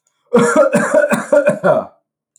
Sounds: Cough